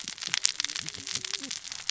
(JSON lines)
{"label": "biophony, cascading saw", "recorder": "SoundTrap 600 or HydroMoth"}